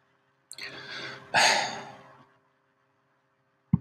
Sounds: Sigh